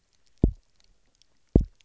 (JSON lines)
{"label": "biophony, double pulse", "recorder": "SoundTrap 300"}